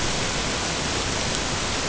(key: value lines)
label: ambient
recorder: HydroMoth